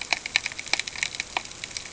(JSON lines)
{"label": "ambient", "recorder": "HydroMoth"}